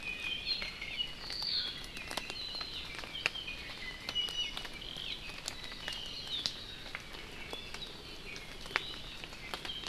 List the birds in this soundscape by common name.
Iiwi, Hawaii Amakihi, Apapane